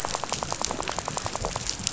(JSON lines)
{"label": "biophony, rattle", "recorder": "SoundTrap 500"}